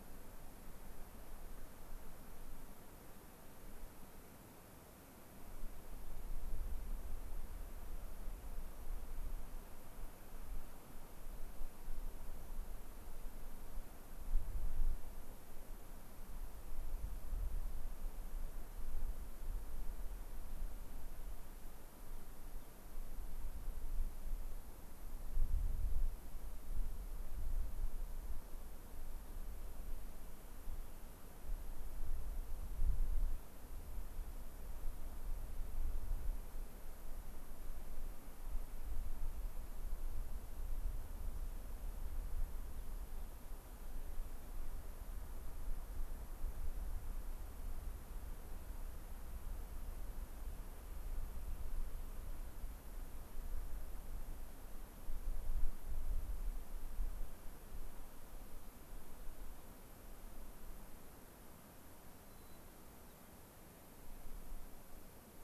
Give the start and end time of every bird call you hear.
22.0s-22.2s: Rock Wren (Salpinctes obsoletus)
22.5s-22.7s: Rock Wren (Salpinctes obsoletus)
62.2s-63.3s: White-crowned Sparrow (Zonotrichia leucophrys)

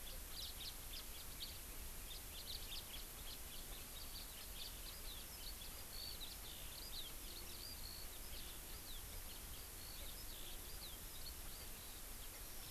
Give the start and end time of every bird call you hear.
0.0s-1.6s: House Finch (Haemorhous mexicanus)
2.1s-3.7s: House Finch (Haemorhous mexicanus)
4.5s-4.7s: House Finch (Haemorhous mexicanus)
4.8s-11.6s: Eurasian Skylark (Alauda arvensis)

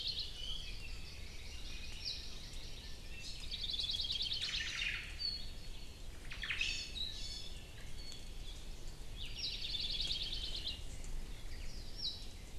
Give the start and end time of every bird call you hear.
0.2s-0.8s: Iiwi (Drepanis coccinea)
0.7s-3.1s: Hawaii Amakihi (Chlorodrepanis virens)
2.0s-2.3s: Apapane (Himatione sanguinea)
3.4s-4.9s: Hawaii Creeper (Loxops mana)
4.3s-5.2s: Omao (Myadestes obscurus)
4.4s-4.9s: Hawaii Amakihi (Chlorodrepanis virens)
5.1s-5.7s: Apapane (Himatione sanguinea)
6.1s-6.8s: Omao (Myadestes obscurus)
6.5s-8.4s: Iiwi (Drepanis coccinea)
9.1s-10.9s: Hawaii Creeper (Loxops mana)
9.3s-9.7s: Apapane (Himatione sanguinea)
11.4s-11.8s: Omao (Myadestes obscurus)
11.9s-12.3s: Apapane (Himatione sanguinea)

